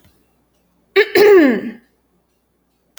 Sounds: Throat clearing